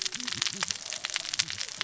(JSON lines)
{"label": "biophony, cascading saw", "recorder": "SoundTrap 600 or HydroMoth"}